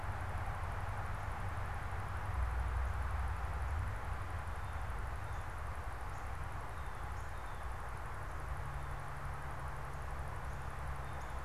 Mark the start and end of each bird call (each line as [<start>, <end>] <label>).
[4.18, 11.45] Blue Jay (Cyanocitta cristata)
[10.88, 11.45] Northern Cardinal (Cardinalis cardinalis)